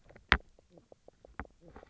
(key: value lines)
label: biophony, knock croak
recorder: SoundTrap 300